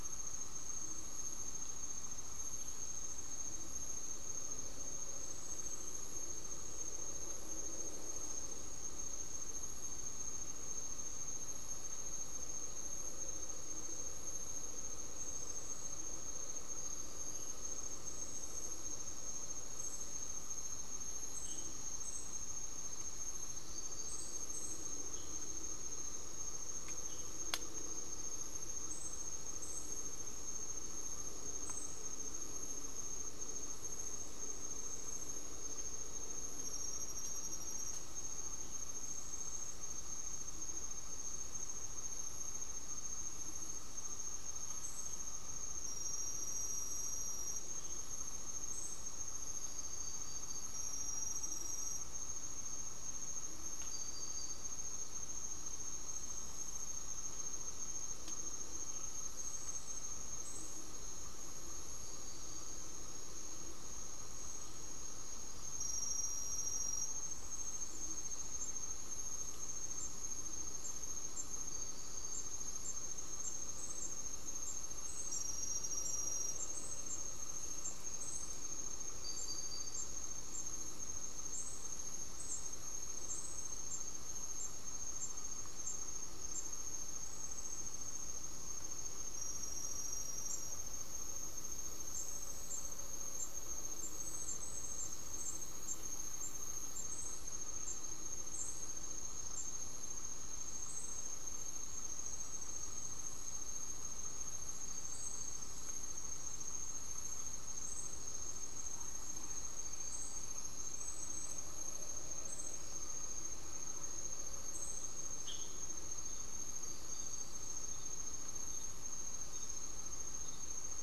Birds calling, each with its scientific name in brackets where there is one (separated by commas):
Amazonian Motmot (Momotus momota)